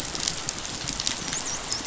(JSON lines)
{"label": "biophony, dolphin", "recorder": "SoundTrap 500"}